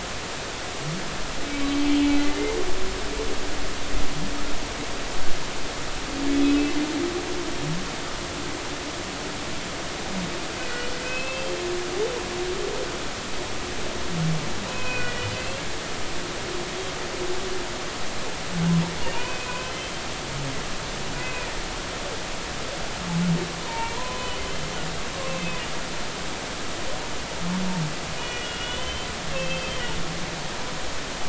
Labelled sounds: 6.3	6.6	humpback whale, 3.3 to 3.5 kHz
10.7	11.6	humpback whale, 1.9 to 3.2 kHz
14.6	15.6	humpback whale, 0.96 to 3.0 kHz
19.1	19.9	humpback whale, 0.93 to 3.2 kHz
21.1	21.5	humpback whale, 2.3 to 2.6 kHz
23.6	24.4	humpback whale, 0.86 to 2.4 kHz
25.2	25.6	humpback whale, 2.5 to 2.7 kHz
28.2	29.1	humpback whale, 2.4 to 3.1 kHz
29.3	29.8	humpback whale, 2.6 to 3.2 kHz

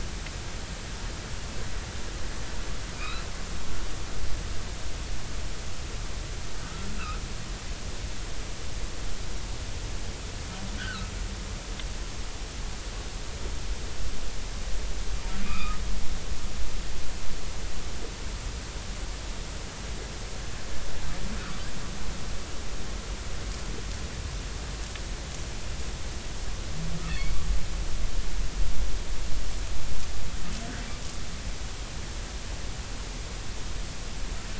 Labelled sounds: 2.9	3.2	humpback whale, 2.2 to 2.7 kHz
6.6	7.2	humpback whale, 1.2 to 1.6 kHz
10.8	11.1	humpback whale, 1.2 to 3.4 kHz
15.4	15.8	humpback whale, 1.1 to 2.6 kHz
27.1	27.4	humpback whale, 2.1 to 2.3 kHz

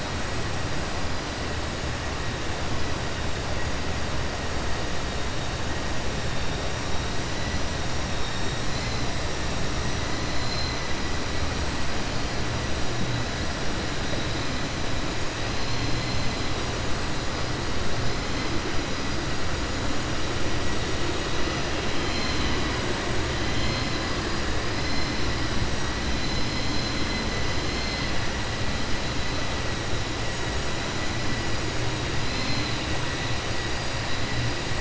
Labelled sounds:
26.1	27.2	vessel noise, 3.2 to 6.1 kHz

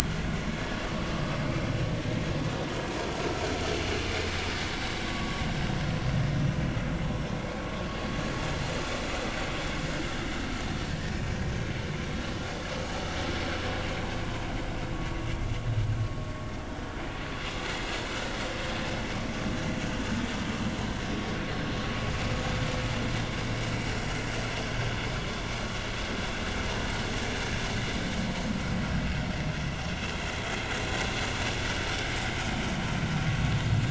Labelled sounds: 5.1	5.4	vessel noise, 1.1 to 1.2 kHz
14.2	14.5	vessel noise, 0.93 to 1.1 kHz
29.5	29.8	vessel noise, 5.9 to 6.2 kHz
33.6	33.8	vessel noise, 7.2 to 7.4 kHz

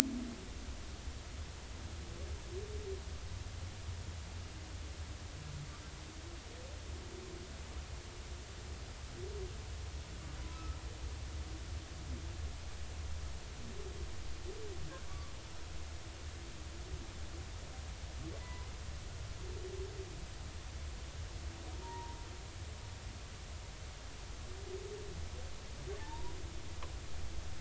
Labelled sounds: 10.5	10.8	humpback whale, 1.2 to 1.4 kHz
15.1	15.3	humpback whale, 1.0 to 1.2 kHz
18.4	18.7	humpback whale, 0.90 to 2.0 kHz
21.8	22.2	humpback whale, 0.86 to 0.99 kHz
26.0	26.3	humpback whale, 0.83 to 1.0 kHz

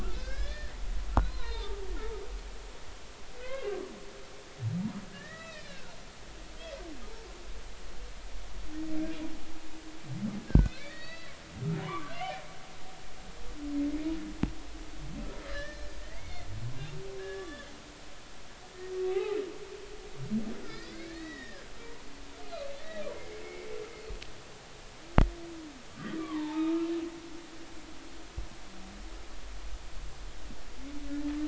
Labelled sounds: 0.1	1.7	humpback whale, 0.86 to 5.2 kHz
3.4	3.8	humpback whale, 0.96 to 2.9 kHz
5.1	5.9	humpback whale, 1.2 to 4.0 kHz
10.5	11.3	humpback whale, 1.4 to 4.7 kHz
11.8	12.1	humpback whale, 0.93 to 1.3 kHz
15.5	16.5	humpback whale, 1.5 to 5.4 kHz
17.2	17.7	humpback whale, 1.1 to 3.6 kHz
18.9	19.4	humpback whale, 0.80 to 1.3 kHz
20.6	21.7	humpback whale, 1.3 to 3.9 kHz
22.1	23.7	humpback whale, 2.0 to 4.6 kHz
26.2	26.9	humpback whale, 0.83 to 2.6 kHz

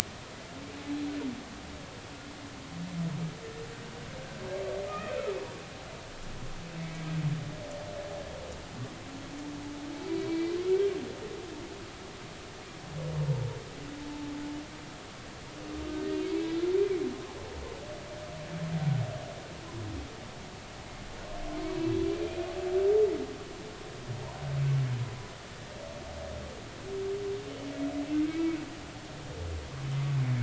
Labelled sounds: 4.9	5.2	humpback whale, 1.2 to 2.6 kHz
6.8	7.1	humpback whale, 1.9 to 2.3 kHz
10.1	10.6	humpback whale, 2.2 to 4.7 kHz
28.3	28.6	humpback whale, 2.2 to 2.4 kHz

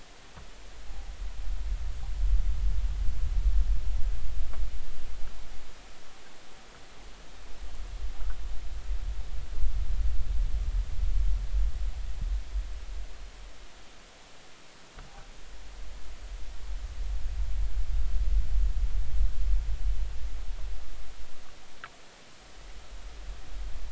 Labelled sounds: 0.9	1.1	noise likely from the mooring, 0.80 to 0.86 kHz

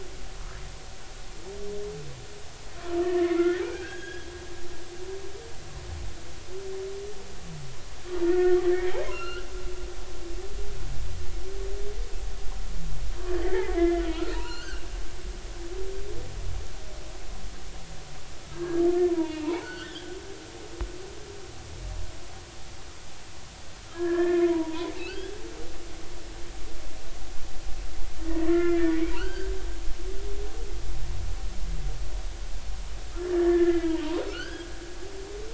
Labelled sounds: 3.0	4.6	humpback whale, 1.3 to 3.4 kHz
8.3	8.6	humpback whale, 1.3 to 2.0 kHz
9.1	9.5	humpback whale, 1.2 to 4.3 kHz
13.3	14.0	humpback whale, 1.6 to 3.5 kHz
14.3	14.9	humpback whale, 0.86 to 4.5 kHz
18.5	20.1	humpback whale, 0.80 to 4.6 kHz
23.9	25.4	humpback whale, 0.86 to 3.5 kHz
28.5	29.5	humpback whale, 1.1 to 2.5 kHz
33.3	34.0	humpback whale, 1.6 to 2.1 kHz
34.3	34.7	humpback whale, 1.2 to 5.1 kHz

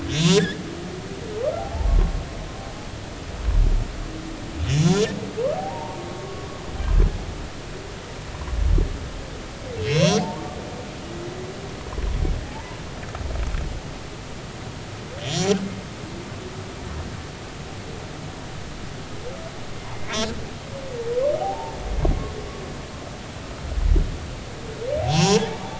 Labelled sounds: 0.1	0.6	humpback whale, 1.6 to 3.9 kHz
1.6	2.1	humpback whale, 0.80 to 1.2 kHz
4.7	4.9	humpback whale, 3.3 to 3.5 kHz
5.5	6.5	humpback whale, 0.80 to 1.2 kHz
9.8	10.5	humpback whale, 0.80 to 6.1 kHz
15.2	15.6	humpback whale, 3.0 to 7.3 kHz
19.9	20.3	humpback whale, 2.0 to 2.6 kHz
21.4	21.8	humpback whale, 0.80 to 0.96 kHz
25.0	25.4	humpback whale, 0.80 to 5.6 kHz

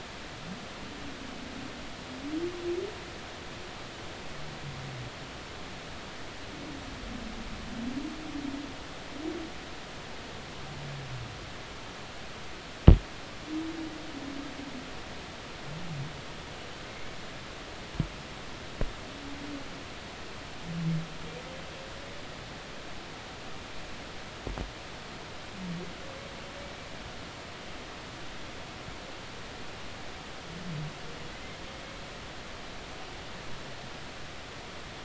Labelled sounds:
16.9	17.2	humpback whale, 2.1 to 2.3 kHz

